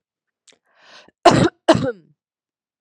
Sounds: Cough